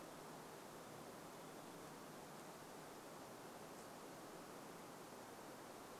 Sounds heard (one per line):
Varied Thrush song